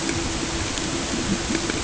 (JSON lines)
{"label": "ambient", "recorder": "HydroMoth"}